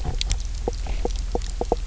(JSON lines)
{"label": "biophony, knock croak", "recorder": "SoundTrap 300"}